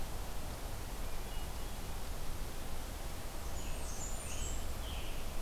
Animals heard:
Hermit Thrush (Catharus guttatus), Blackburnian Warbler (Setophaga fusca), Scarlet Tanager (Piranga olivacea)

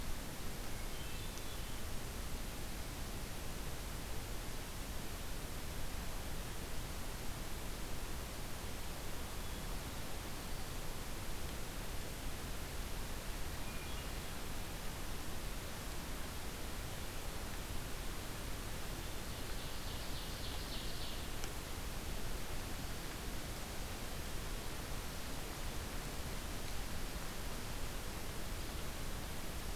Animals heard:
Hermit Thrush (Catharus guttatus), Ovenbird (Seiurus aurocapilla)

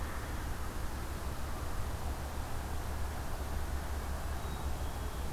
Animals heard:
Black-capped Chickadee (Poecile atricapillus)

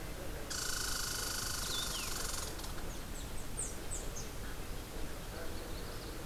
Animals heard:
Magnolia Warbler (Setophaga magnolia), Red Squirrel (Tamiasciurus hudsonicus)

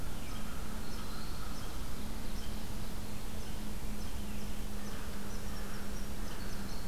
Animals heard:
American Crow (Corvus brachyrhynchos), unknown mammal, Eastern Wood-Pewee (Contopus virens)

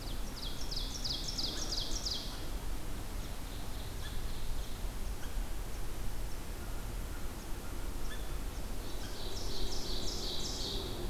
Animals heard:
Ovenbird (Seiurus aurocapilla), American Crow (Corvus brachyrhynchos), Red Squirrel (Tamiasciurus hudsonicus)

